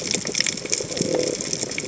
{"label": "biophony", "recorder": "HydroMoth"}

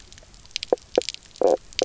{"label": "biophony, knock croak", "recorder": "SoundTrap 300"}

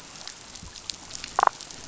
{"label": "biophony, damselfish", "recorder": "SoundTrap 500"}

